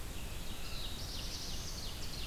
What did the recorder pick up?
Black-throated Blue Warbler, Ovenbird